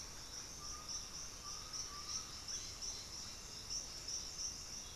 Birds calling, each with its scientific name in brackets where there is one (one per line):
Undulated Tinamou (Crypturellus undulatus)
Cobalt-winged Parakeet (Brotogeris cyanoptera)
Russet-backed Oropendola (Psarocolius angustifrons)